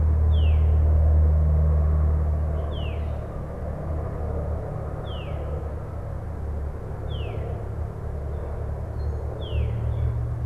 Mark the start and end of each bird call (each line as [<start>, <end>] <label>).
[0.17, 10.45] Veery (Catharus fuscescens)